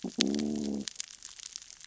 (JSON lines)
{"label": "biophony, growl", "recorder": "SoundTrap 600 or HydroMoth"}